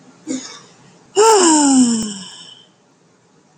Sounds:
Sigh